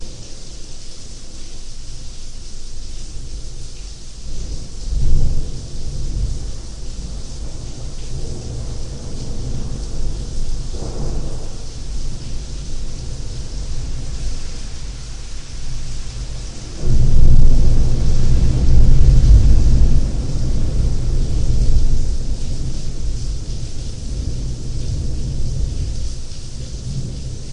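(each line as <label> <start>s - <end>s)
Rainwater splashes on a surface. 0.0s - 27.5s
Rolling thunder rumbling in the distance followed by its echo. 4.8s - 11.8s
Rolling thunder followed by an echo. 16.8s - 26.2s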